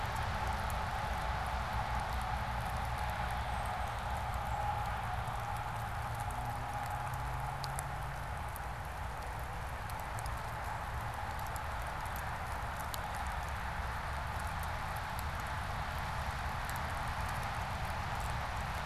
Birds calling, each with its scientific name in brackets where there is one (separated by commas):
Tufted Titmouse (Baeolophus bicolor)